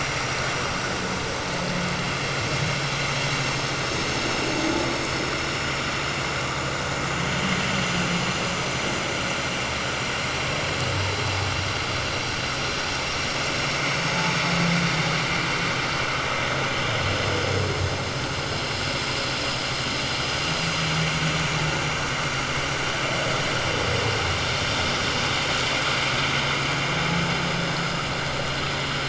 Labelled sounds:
5.1	5.3	vessel noise, 6.8 to 6.9 kHz

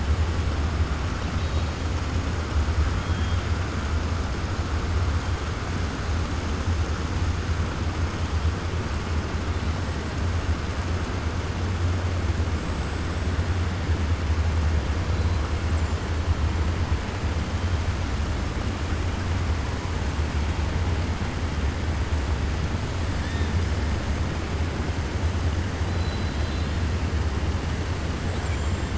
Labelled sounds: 25.9	26.8	killer whale, 2.6 to 4.9 kHz
28.3	28.9	killer whale, 7.0 to 7.9 kHz

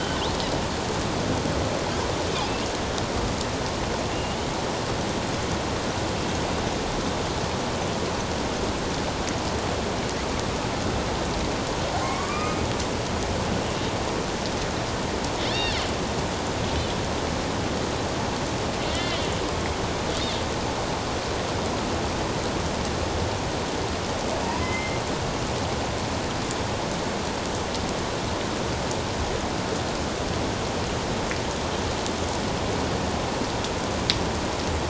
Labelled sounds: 2.5	2.7	killer whale, northern resident, A clan, AB subclan, 2.6 to 2.9 kHz
4.1	4.5	killer whale, northern resident, A clan, AB subclan, 2.7 to 3.1 kHz
12.0	12.6	killer whale, northern resident, A clan, AB subclan, 1.0 to 2.5 kHz
15.5	15.8	killer whale, northern resident, A clan, AB subclan, 3.4 to 4.7 kHz
18.8	19.2	killer whale, northern resident, A clan, AB subclan, 1.9 to 3.2 kHz
24.4	25.0	killer whale, northern resident, A clan, AB subclan, 0.88 to 2.2 kHz

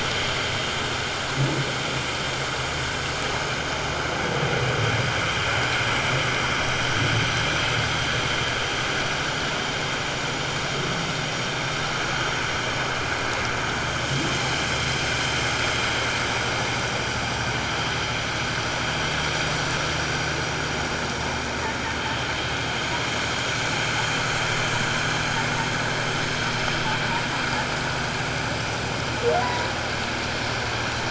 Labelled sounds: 29.4	29.7	humpback whale, 0.94 to 1.0 kHz

